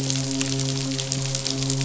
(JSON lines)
{"label": "biophony, midshipman", "recorder": "SoundTrap 500"}